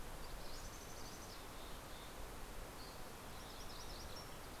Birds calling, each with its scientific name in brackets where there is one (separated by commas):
MacGillivray's Warbler (Geothlypis tolmiei), Dusky Flycatcher (Empidonax oberholseri), Mountain Chickadee (Poecile gambeli)